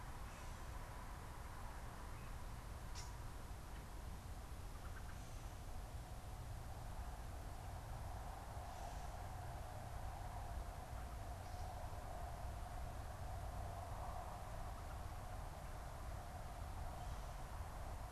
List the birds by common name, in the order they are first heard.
Gray Catbird, unidentified bird